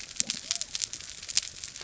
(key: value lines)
label: biophony
recorder: SoundTrap 300